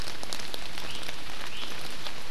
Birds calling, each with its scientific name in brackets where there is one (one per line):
Iiwi (Drepanis coccinea)